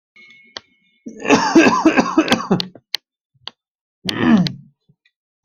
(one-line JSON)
{"expert_labels": [{"quality": "good", "cough_type": "wet", "dyspnea": false, "wheezing": false, "stridor": false, "choking": false, "congestion": false, "nothing": true, "diagnosis": "upper respiratory tract infection", "severity": "mild"}], "age": 35, "gender": "male", "respiratory_condition": false, "fever_muscle_pain": true, "status": "symptomatic"}